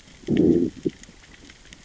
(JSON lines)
{"label": "biophony, growl", "recorder": "SoundTrap 600 or HydroMoth"}